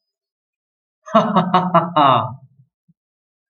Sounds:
Laughter